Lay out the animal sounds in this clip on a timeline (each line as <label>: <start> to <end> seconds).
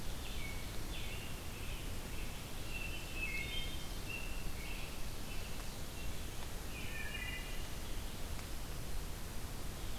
American Robin (Turdus migratorius): 0.0 to 3.1 seconds
Wood Thrush (Hylocichla mustelina): 2.6 to 3.9 seconds
American Robin (Turdus migratorius): 3.9 to 7.3 seconds
Wood Thrush (Hylocichla mustelina): 6.3 to 7.7 seconds